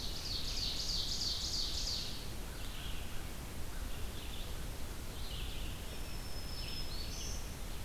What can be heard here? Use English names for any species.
Ovenbird, Red-eyed Vireo, American Crow